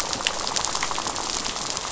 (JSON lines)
{"label": "biophony, rattle", "recorder": "SoundTrap 500"}
{"label": "biophony", "recorder": "SoundTrap 500"}